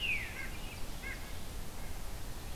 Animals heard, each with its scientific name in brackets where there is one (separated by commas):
Veery (Catharus fuscescens), Red-eyed Vireo (Vireo olivaceus), White-breasted Nuthatch (Sitta carolinensis)